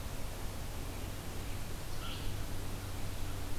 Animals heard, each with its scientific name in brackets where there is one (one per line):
American Crow (Corvus brachyrhynchos)